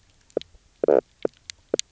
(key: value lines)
label: biophony, knock croak
recorder: SoundTrap 300